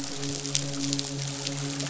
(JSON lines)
{"label": "biophony, midshipman", "recorder": "SoundTrap 500"}